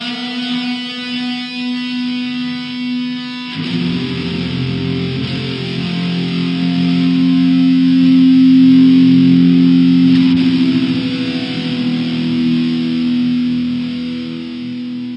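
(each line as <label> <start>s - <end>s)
Loud and continuous notes played on an amplified electric guitar. 0.0s - 15.2s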